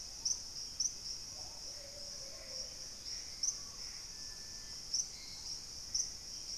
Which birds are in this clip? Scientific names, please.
Cercomacra cinerascens, Turdus hauxwelli, Patagioenas plumbea, Querula purpurata